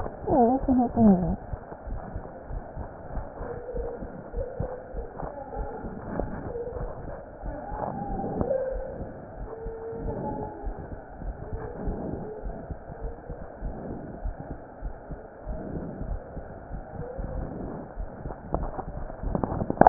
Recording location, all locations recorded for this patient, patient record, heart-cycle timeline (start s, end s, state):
mitral valve (MV)
pulmonary valve (PV)+tricuspid valve (TV)+mitral valve (MV)
#Age: Adolescent
#Sex: Male
#Height: 149.0 cm
#Weight: 31.7 kg
#Pregnancy status: False
#Murmur: Unknown
#Murmur locations: nan
#Most audible location: nan
#Systolic murmur timing: nan
#Systolic murmur shape: nan
#Systolic murmur grading: nan
#Systolic murmur pitch: nan
#Systolic murmur quality: nan
#Diastolic murmur timing: nan
#Diastolic murmur shape: nan
#Diastolic murmur grading: nan
#Diastolic murmur pitch: nan
#Diastolic murmur quality: nan
#Outcome: Normal
#Campaign: 2015 screening campaign
0.00	10.48	unannotated
10.48	10.63	diastole
10.63	10.78	S1
10.78	10.90	systole
10.90	11.01	S2
11.01	11.24	diastole
11.24	11.36	S1
11.36	11.52	systole
11.52	11.59	S2
11.59	11.82	diastole
11.82	11.95	S1
11.95	12.11	systole
12.11	12.18	S2
12.18	12.42	diastole
12.42	12.56	S1
12.56	12.68	systole
12.68	12.75	S2
12.75	13.00	diastole
13.00	13.14	S1
13.14	13.28	systole
13.28	13.36	S2
13.36	13.62	diastole
13.62	13.76	S1
13.76	13.88	systole
13.88	13.98	S2
13.98	14.22	diastole
14.22	14.36	S1
14.36	14.48	systole
14.48	14.58	S2
14.58	14.78	diastole
14.78	14.92	S1
14.92	15.08	systole
15.08	15.18	S2
15.18	15.46	diastole
15.46	15.60	S1
15.60	15.74	systole
15.74	15.84	S2
15.84	16.02	diastole
16.02	16.20	S1
16.20	16.33	systole
16.33	16.43	S2
16.43	16.70	diastole
16.70	16.84	S1
16.84	16.96	systole
16.96	17.08	S2
17.08	17.21	diastole
17.21	17.96	unannotated
17.96	18.09	S1
18.09	18.24	systole
18.24	18.32	S2
18.32	18.60	diastole
18.60	18.72	S1
18.72	18.95	systole
18.95	19.04	S2
19.04	19.22	diastole
19.22	19.36	S1
19.36	19.89	unannotated